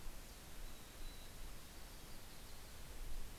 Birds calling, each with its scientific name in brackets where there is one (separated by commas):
Yellow-rumped Warbler (Setophaga coronata), Mountain Chickadee (Poecile gambeli)